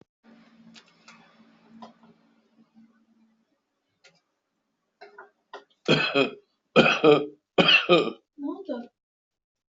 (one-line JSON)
{"expert_labels": [{"quality": "ok", "cough_type": "dry", "dyspnea": false, "wheezing": true, "stridor": false, "choking": false, "congestion": false, "nothing": false, "diagnosis": "COVID-19", "severity": "mild"}], "age": 46, "gender": "male", "respiratory_condition": false, "fever_muscle_pain": true, "status": "healthy"}